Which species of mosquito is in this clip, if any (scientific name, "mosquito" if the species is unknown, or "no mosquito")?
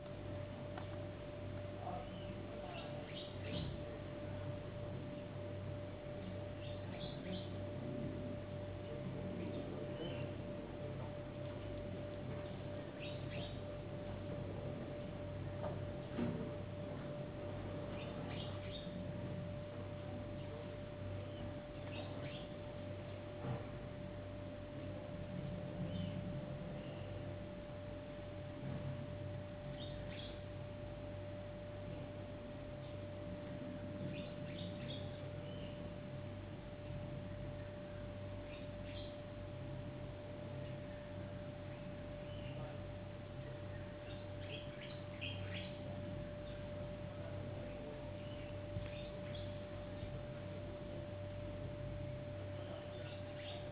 no mosquito